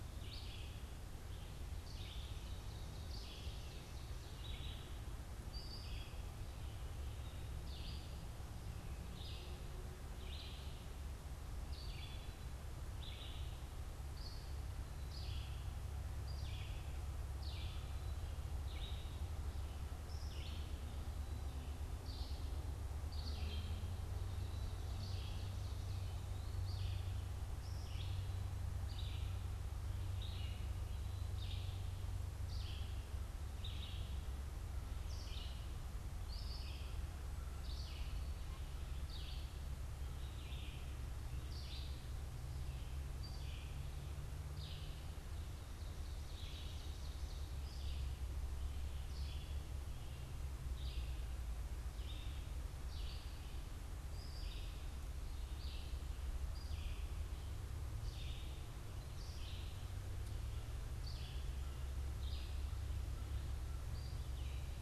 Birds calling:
American Crow (Corvus brachyrhynchos), Red-eyed Vireo (Vireo olivaceus), Ovenbird (Seiurus aurocapilla)

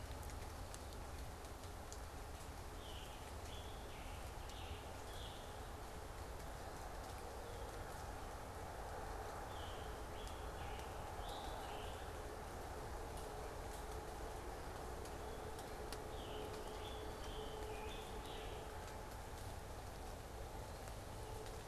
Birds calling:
Scarlet Tanager (Piranga olivacea)

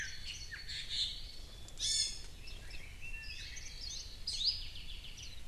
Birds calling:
Hawaii Akepa (Loxops coccineus), Warbling White-eye (Zosterops japonicus), Apapane (Himatione sanguinea), Iiwi (Drepanis coccinea), Chinese Hwamei (Garrulax canorus)

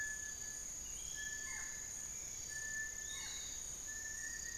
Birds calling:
Buff-throated Woodcreeper (Xiphorhynchus guttatus), Little Tinamou (Crypturellus soui), Barred Forest-Falcon (Micrastur ruficollis), Piratic Flycatcher (Legatus leucophaius)

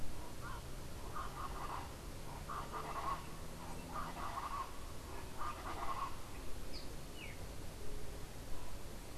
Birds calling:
Colombian Chachalaca (Ortalis columbiana)

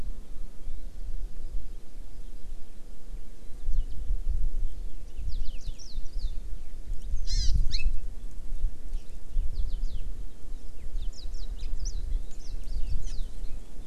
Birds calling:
House Finch (Haemorhous mexicanus), Hawaii Amakihi (Chlorodrepanis virens)

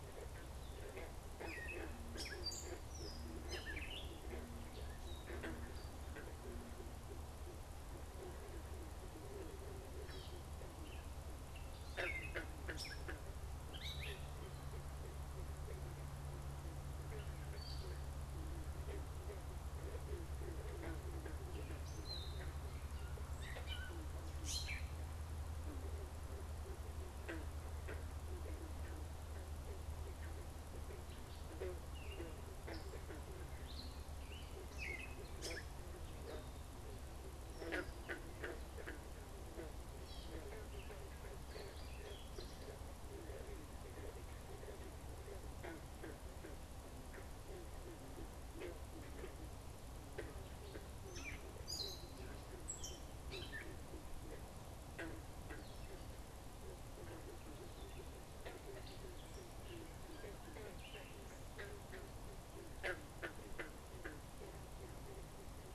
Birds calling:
Gray Catbird (Dumetella carolinensis)

